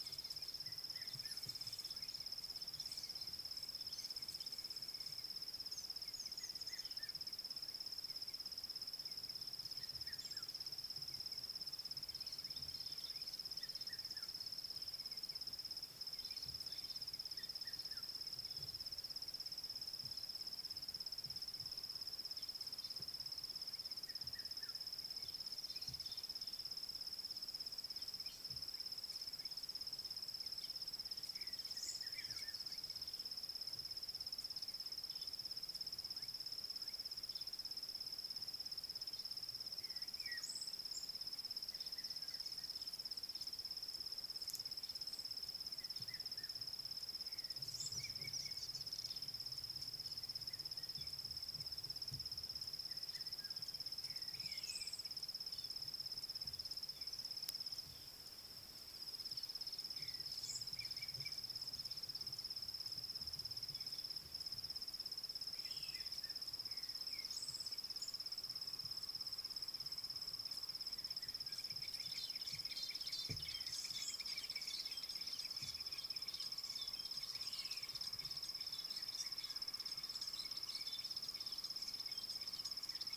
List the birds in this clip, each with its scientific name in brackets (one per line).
Fork-tailed Drongo (Dicrurus adsimilis)
African Black-headed Oriole (Oriolus larvatus)
Rattling Cisticola (Cisticola chiniana)